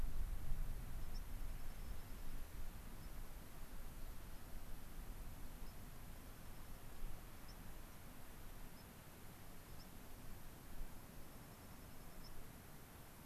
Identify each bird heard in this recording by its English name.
White-crowned Sparrow, Dark-eyed Junco